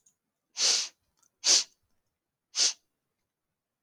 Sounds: Sneeze